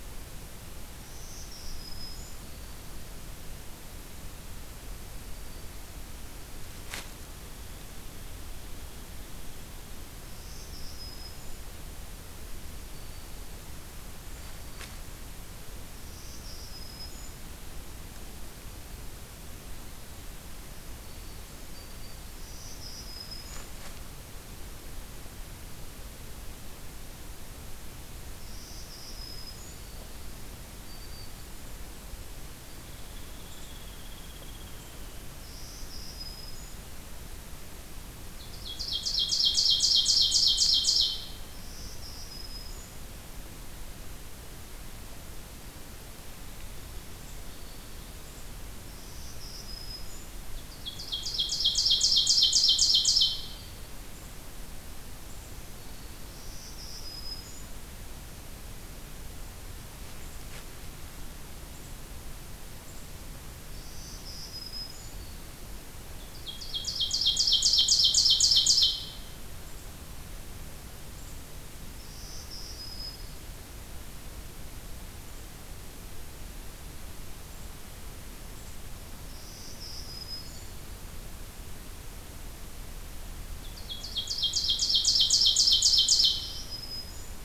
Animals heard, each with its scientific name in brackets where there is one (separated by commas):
Ovenbird (Seiurus aurocapilla), Black-throated Green Warbler (Setophaga virens), Hairy Woodpecker (Dryobates villosus)